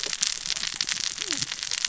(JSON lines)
{"label": "biophony, cascading saw", "recorder": "SoundTrap 600 or HydroMoth"}